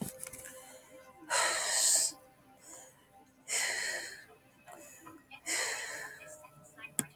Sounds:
Sigh